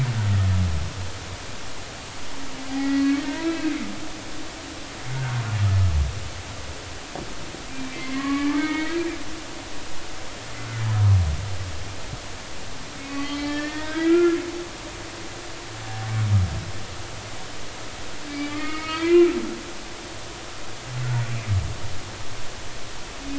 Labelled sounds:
2.7	3.7	humpback whale, 1.8 to 2.7 kHz
5.1	5.4	humpback whale, 1.3 to 1.6 kHz
7.7	9.0	humpback whale, 0.83 to 2.4 kHz
13.0	14.4	humpback whale, 1.1 to 4.4 kHz
18.3	19.3	humpback whale, 1.1 to 4.6 kHz

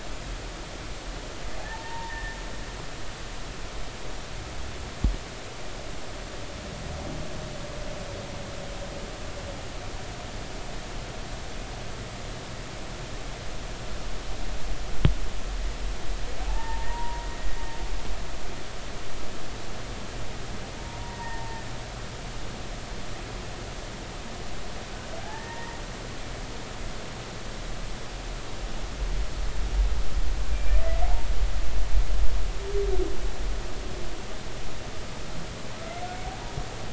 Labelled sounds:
1.7	2.4	humpback whale, 0.83 to 1.9 kHz
16.5	17.3	humpback whale, 0.80 to 1.9 kHz
21.0	21.6	humpback whale, 0.86 to 1.9 kHz
25.2	25.8	humpback whale, 0.80 to 2.0 kHz
30.5	30.8	humpback whale, 2.3 to 2.5 kHz
35.8	36.0	humpback whale, 1.3 to 1.4 kHz

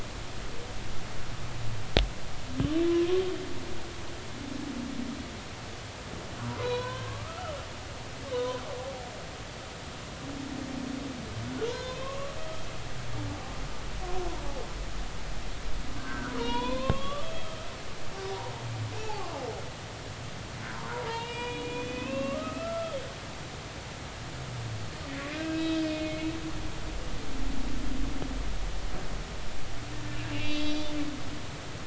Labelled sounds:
6.4	7.5	humpback whale, 0.90 to 5.6 kHz
8.3	8.6	humpback whale, 0.93 to 1.1 kHz
11.7	12.3	humpback whale, 0.90 to 4.2 kHz
15.9	17.7	humpback whale, 0.90 to 4.5 kHz
20.0	23.0	humpback whale, 0.80 to 4.9 kHz
25.3	26.3	humpback whale, 1.5 to 3.3 kHz
30.3	31.0	humpback whale, 2.6 to 4.6 kHz

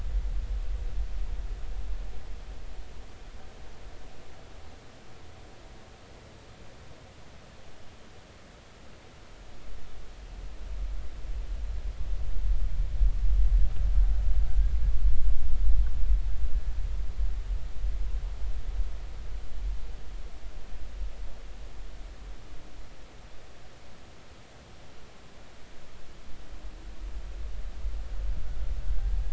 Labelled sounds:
28.8	29.2	killer whale, Bigg's (transient), 1.5 to 1.6 kHz

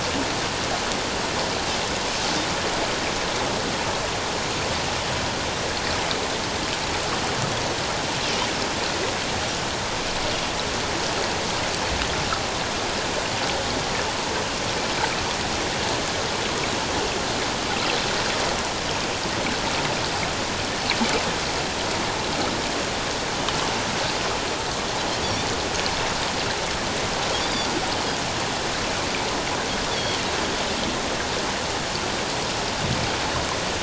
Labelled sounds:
27.4	27.7	Pacific white-sided dolphin, 4.5 to 4.9 kHz

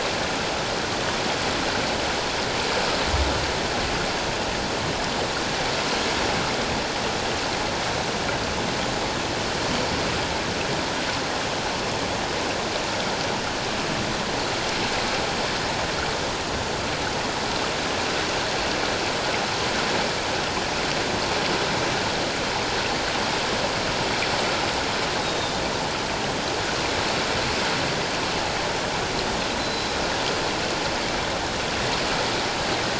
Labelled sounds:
25.2	25.6	Pacific white-sided dolphin, 3.5 to 3.8 kHz
29.6	29.9	Pacific white-sided dolphin, 3.9 to 4.1 kHz

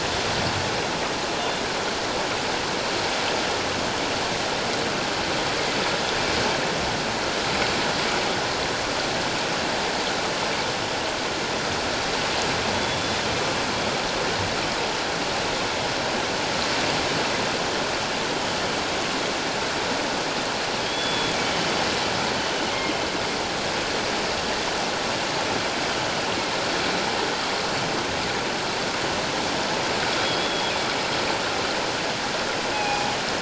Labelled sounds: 20.8	21.7	killer whale, northern resident, G clan, 3.0 to 3.5 kHz
30.2	30.7	killer whale, northern resident, G clan, 3.1 to 3.4 kHz
32.7	33.1	killer whale, northern resident, G clan, 0.78 to 2.6 kHz

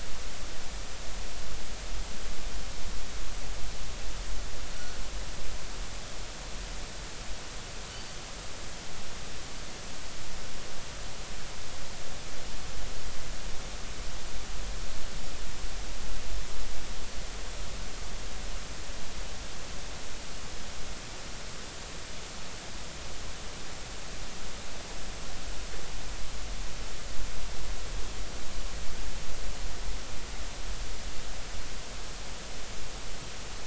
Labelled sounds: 7.9	8.2	Pacific white-sided dolphin, 4.5 to 4.7 kHz

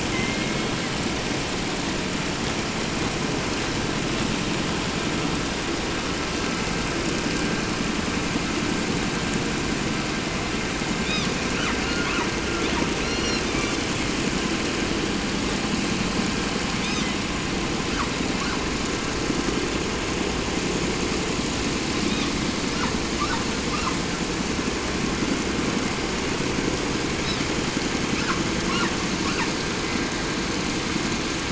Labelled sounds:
0.0	1.1	killer whale, southern resident, J pod, call S01, 0.73 to 5.6 kHz
11.0	12.3	killer whale, 0.49 to 6.5 kHz
12.6	14.1	killer whale, 0.47 to 8.0 kHz
16.7	17.2	killer whale, 0.92 to 6.8 kHz
17.8	18.7	killer whale, 0.56 to 7.3 kHz
22.0	22.4	killer whale, 0.64 to 6.6 kHz
22.7	24.0	killer whale, 0.60 to 7.3 kHz
27.2	27.5	killer whale, 1.6 to 5.6 kHz
28.0	29.6	killer whale, 0.66 to 6.0 kHz

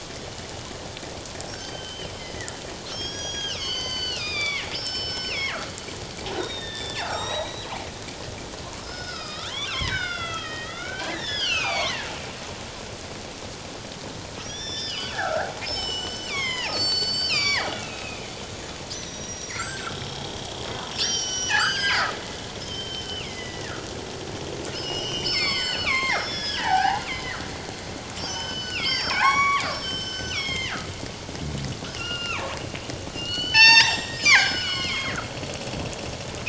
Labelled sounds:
1.5	2.5	killer whale, northern resident, G clan, 1.4 to 6.3 kHz
2.9	5.6	killer whale, northern resident, G clan, 0.97 to 6.6 kHz
6.3	7.8	killer whale, northern resident, G clan, 0.78 to 7.8 kHz
8.8	12.1	killer whale, northern resident, G clan, 0.78 to 6.8 kHz
14.4	18.3	killer whale, northern resident, G clan, 0.78 to 7.7 kHz
18.9	20.4	killer whale, northern resident, G clan, 1.2 to 7.8 kHz
20.9	22.1	killer whale, northern resident, G clan, 1.2 to 8.0 kHz
22.6	23.8	killer whale, northern resident, G clan, 1.6 to 5.5 kHz
24.7	27.5	killer whale, northern resident, G clan, 0.78 to 7.7 kHz
28.2	30.9	killer whale, northern resident, G clan, 0.78 to 7.9 kHz
32.0	32.6	killer whale, northern resident, G clan, 0.84 to 5.1 kHz
33.1	35.2	killer whale, northern resident, G clan, 0.78 to 7.5 kHz

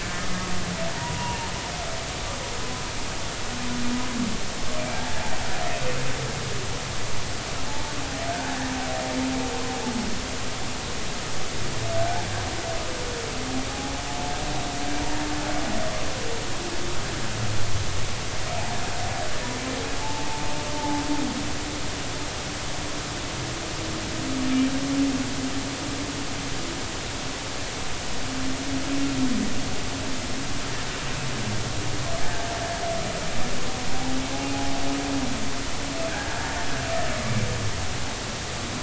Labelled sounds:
0.0	1.4	humpback whale, 0.86 to 1.8 kHz
4.9	5.2	humpback whale, 0.80 to 0.93 kHz
7.7	8.5	humpback whale, 0.83 to 1.7 kHz
20.0	21.0	humpback whale, 0.80 to 0.93 kHz
32.2	32.4	humpback whale, 1.5 to 1.8 kHz
36.1	36.5	humpback whale, 1.4 to 1.8 kHz

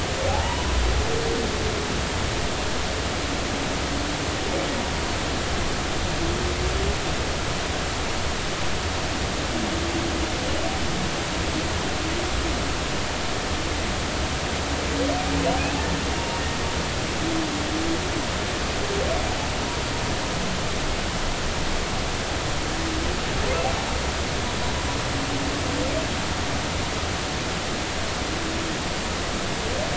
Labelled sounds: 0.3	0.6	humpback whale, 0.80 to 1.0 kHz

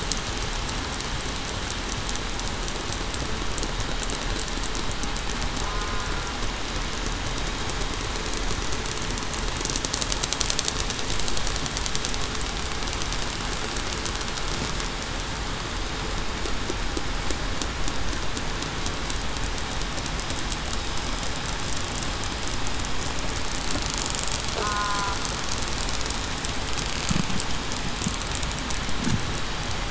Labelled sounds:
5.6	6.1	killer whale, southern resident, 1.0 to 1.1 kHz
24.6	25.2	killer whale, southern resident, 0.96 to 1.5 kHz

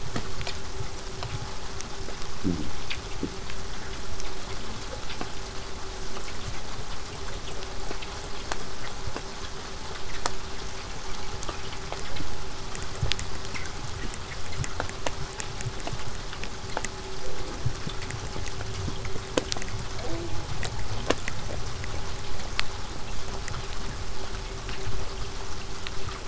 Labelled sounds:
0.0	5.0	vessel noise, 0 to 8.0 kHz
6.8	9.3	killer whale, southern resident, 7.1 to 8.0 kHz

